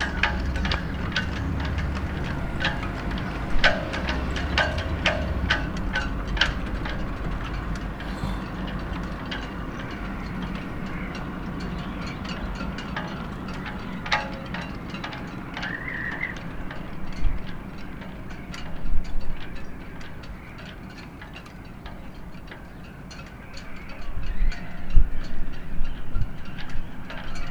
Does the object beat together multiple times?
yes